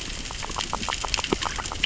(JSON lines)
{"label": "biophony, grazing", "recorder": "SoundTrap 600 or HydroMoth"}